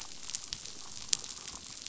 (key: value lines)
label: biophony, chatter
recorder: SoundTrap 500